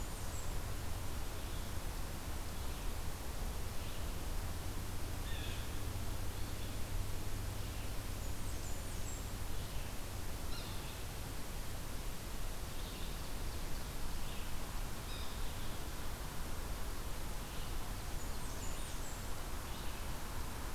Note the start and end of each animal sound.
0.0s-0.7s: Blackburnian Warbler (Setophaga fusca)
0.0s-20.7s: Red-eyed Vireo (Vireo olivaceus)
5.0s-5.7s: Blue Jay (Cyanocitta cristata)
8.0s-9.5s: Blackburnian Warbler (Setophaga fusca)
10.4s-10.8s: Yellow-bellied Sapsucker (Sphyrapicus varius)
14.9s-15.6s: Blue Jay (Cyanocitta cristata)
17.9s-19.4s: Blackburnian Warbler (Setophaga fusca)

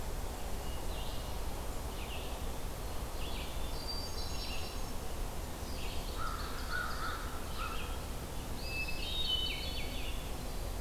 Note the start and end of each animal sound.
0.6s-10.8s: Red-eyed Vireo (Vireo olivaceus)
3.6s-5.0s: Hermit Thrush (Catharus guttatus)
5.3s-7.3s: Ovenbird (Seiurus aurocapilla)
5.8s-7.9s: American Crow (Corvus brachyrhynchos)
8.4s-10.2s: Hermit Thrush (Catharus guttatus)

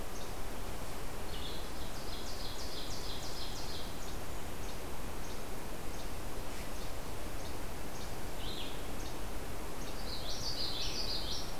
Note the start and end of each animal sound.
0.0s-9.3s: Blue-headed Vireo (Vireo solitarius)
0.0s-9.9s: Least Flycatcher (Empidonax minimus)
1.6s-3.9s: Ovenbird (Seiurus aurocapilla)
7.4s-9.4s: Golden-crowned Kinglet (Regulus satrapa)
9.9s-11.6s: Common Yellowthroat (Geothlypis trichas)

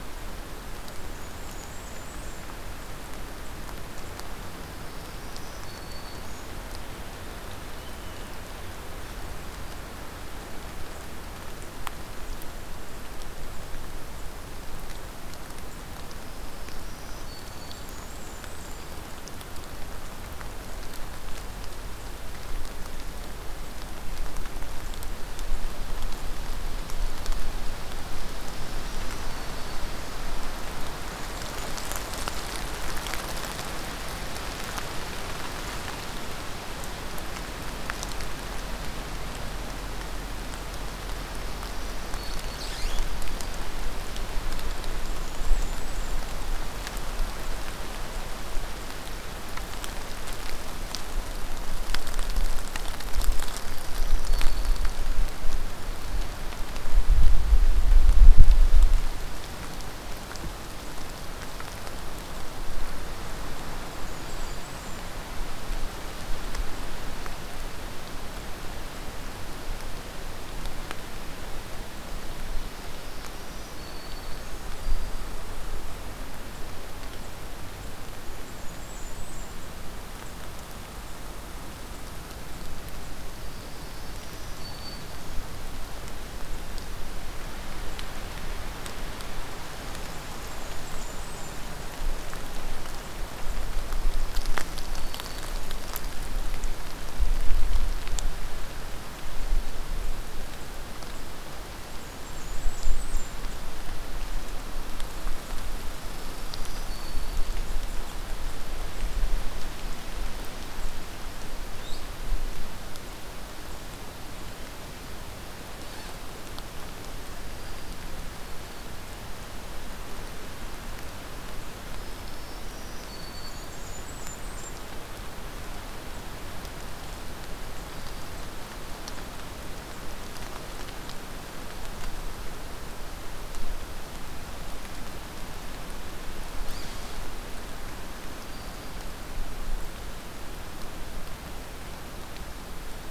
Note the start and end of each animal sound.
0.9s-2.4s: Blackburnian Warbler (Setophaga fusca)
4.5s-6.5s: Black-throated Green Warbler (Setophaga virens)
6.6s-9.2s: Purple Finch (Haemorhous purpureus)
9.3s-9.8s: Black-throated Green Warbler (Setophaga virens)
12.0s-13.9s: Golden-crowned Kinglet (Regulus satrapa)
16.2s-17.9s: Black-throated Green Warbler (Setophaga virens)
17.3s-18.9s: Blackburnian Warbler (Setophaga fusca)
18.5s-19.0s: Black-throated Green Warbler (Setophaga virens)
28.4s-29.8s: Black-throated Green Warbler (Setophaga virens)
30.6s-32.4s: Blackburnian Warbler (Setophaga fusca)
41.2s-42.6s: Black-throated Green Warbler (Setophaga virens)
43.1s-43.7s: Black-throated Green Warbler (Setophaga virens)
44.8s-46.3s: Blackburnian Warbler (Setophaga fusca)
53.5s-55.0s: Black-throated Green Warbler (Setophaga virens)
55.7s-56.5s: Black-throated Green Warbler (Setophaga virens)
63.7s-65.1s: Blackburnian Warbler (Setophaga fusca)
64.0s-64.7s: Black-throated Green Warbler (Setophaga virens)
71.6s-73.4s: Ovenbird (Seiurus aurocapilla)
72.8s-75.3s: Black-throated Green Warbler (Setophaga virens)
78.4s-79.5s: Blackburnian Warbler (Setophaga fusca)
83.3s-85.4s: Black-throated Green Warbler (Setophaga virens)
90.1s-91.5s: Blackburnian Warbler (Setophaga fusca)
93.9s-95.8s: Black-throated Green Warbler (Setophaga virens)
101.8s-103.3s: Blackburnian Warbler (Setophaga fusca)
105.9s-107.5s: Black-throated Green Warbler (Setophaga virens)
111.8s-112.1s: unidentified call
117.4s-118.9s: Black-throated Green Warbler (Setophaga virens)
121.9s-123.9s: Black-throated Green Warbler (Setophaga virens)
123.3s-124.8s: Blackburnian Warbler (Setophaga fusca)
127.9s-128.3s: Black-throated Green Warbler (Setophaga virens)
138.2s-139.1s: Black-throated Green Warbler (Setophaga virens)

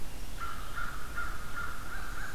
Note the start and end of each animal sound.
0.3s-2.3s: American Crow (Corvus brachyrhynchos)

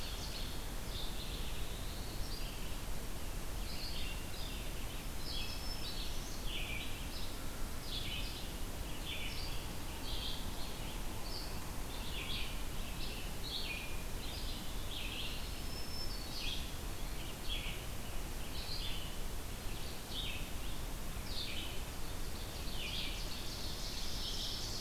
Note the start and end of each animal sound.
0.0s-0.7s: Ovenbird (Seiurus aurocapilla)
0.0s-23.3s: Red-eyed Vireo (Vireo olivaceus)
1.0s-2.2s: Black-throated Blue Warbler (Setophaga caerulescens)
4.9s-6.5s: Black-throated Green Warbler (Setophaga virens)
15.1s-16.7s: Black-throated Green Warbler (Setophaga virens)
21.8s-24.8s: Ovenbird (Seiurus aurocapilla)
24.1s-24.8s: Red-eyed Vireo (Vireo olivaceus)

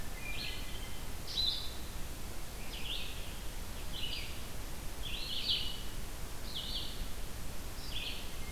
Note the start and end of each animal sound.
0.0s-1.3s: Hermit Thrush (Catharus guttatus)
0.0s-5.9s: Blue-headed Vireo (Vireo solitarius)
0.0s-8.3s: Red-eyed Vireo (Vireo olivaceus)

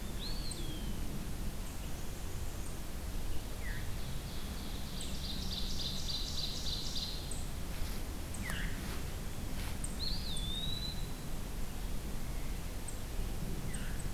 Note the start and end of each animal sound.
0.0s-1.1s: Eastern Wood-Pewee (Contopus virens)
3.4s-7.3s: Ovenbird (Seiurus aurocapilla)
3.5s-3.8s: Veery (Catharus fuscescens)
8.3s-8.7s: Veery (Catharus fuscescens)
9.9s-11.3s: Eastern Wood-Pewee (Contopus virens)
13.5s-14.1s: Veery (Catharus fuscescens)

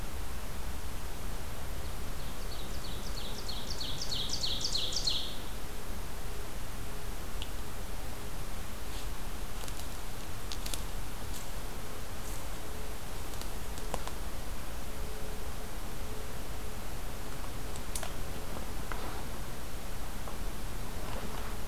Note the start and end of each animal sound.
1.7s-5.5s: Ovenbird (Seiurus aurocapilla)

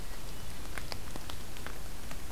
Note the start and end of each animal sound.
0.0s-0.9s: Hermit Thrush (Catharus guttatus)

